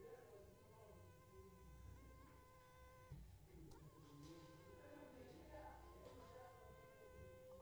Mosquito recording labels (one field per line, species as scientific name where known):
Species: Culex pipiens complex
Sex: female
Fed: unfed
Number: one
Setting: cup